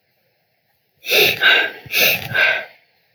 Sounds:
Sniff